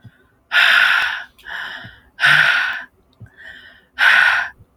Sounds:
Sigh